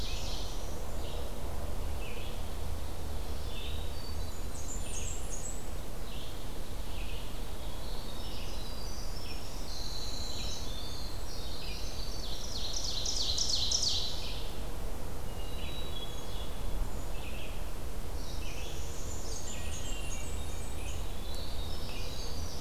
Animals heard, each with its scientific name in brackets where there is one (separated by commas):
Hermit Thrush (Catharus guttatus), Northern Parula (Setophaga americana), Winter Wren (Troglodytes hiemalis), Ovenbird (Seiurus aurocapilla), Red-eyed Vireo (Vireo olivaceus), Blackburnian Warbler (Setophaga fusca)